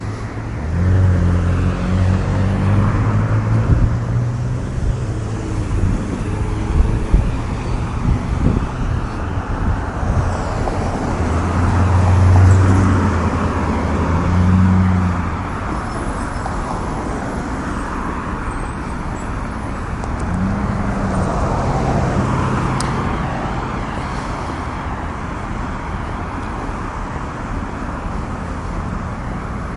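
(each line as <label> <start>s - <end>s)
Ambient traffic noise. 0.0s - 29.7s
A motorcycle engine roars in traffic. 0.7s - 4.3s
A motorcycle engine running in the distance amidst traffic. 5.4s - 15.3s
A high-pitched squeaking noise occurs amid car traffic. 15.6s - 20.7s
A car passes by loudly in traffic. 21.4s - 24.9s
A loud clicking sound. 22.8s - 23.0s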